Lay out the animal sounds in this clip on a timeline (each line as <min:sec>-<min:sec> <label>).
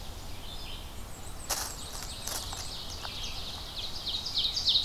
0:00.0-0:00.5 Ovenbird (Seiurus aurocapilla)
0:00.0-0:04.8 Red-eyed Vireo (Vireo olivaceus)
0:00.7-0:03.1 Black-and-white Warbler (Mniotilta varia)
0:01.5-0:04.8 Ovenbird (Seiurus aurocapilla)